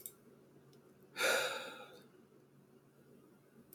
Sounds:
Sigh